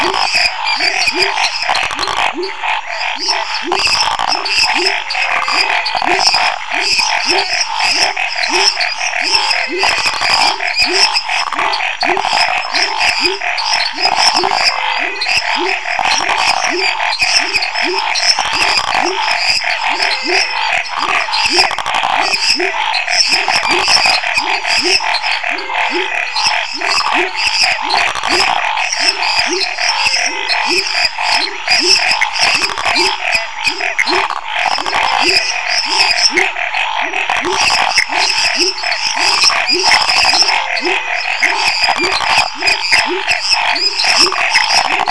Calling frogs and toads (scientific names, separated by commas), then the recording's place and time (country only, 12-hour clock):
Dendropsophus minutus, Boana raniceps, Leptodactylus labyrinthicus, Scinax fuscovarius, Phyllomedusa sauvagii, Physalaemus albonotatus, Leptodactylus fuscus, Pithecopus azureus
Brazil, 9:15pm